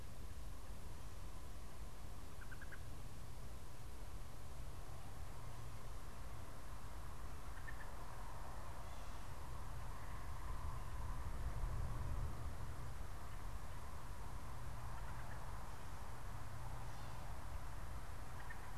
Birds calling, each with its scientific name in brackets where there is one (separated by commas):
unidentified bird